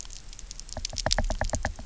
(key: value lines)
label: biophony, knock
recorder: SoundTrap 300